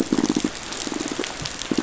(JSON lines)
{"label": "biophony, pulse", "recorder": "SoundTrap 500"}